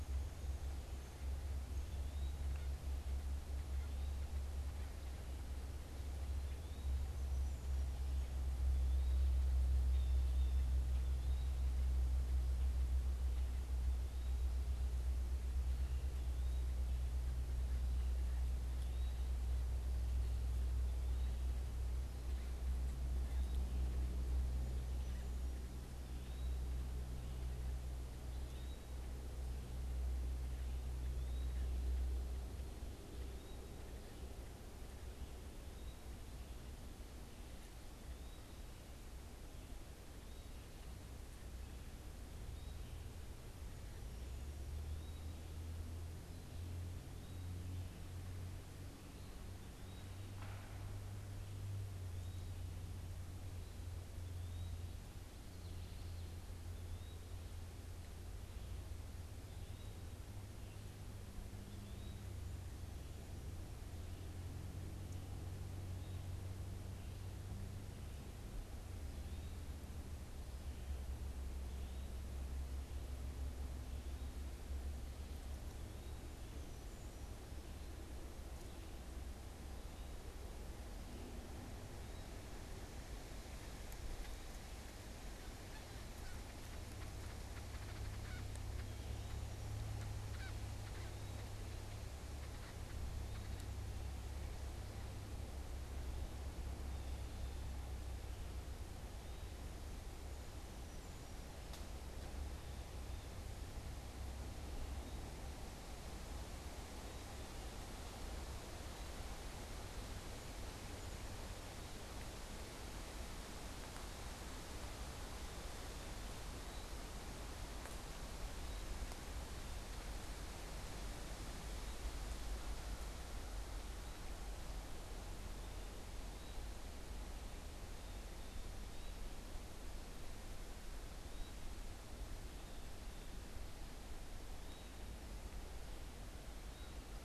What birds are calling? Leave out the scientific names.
Eastern Wood-Pewee, unidentified bird, Blue Jay, Common Yellowthroat